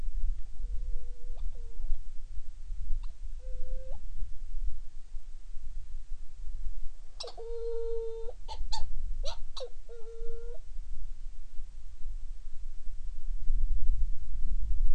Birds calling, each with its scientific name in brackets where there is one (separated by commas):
Hawaiian Petrel (Pterodroma sandwichensis)